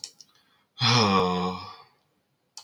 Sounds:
Sigh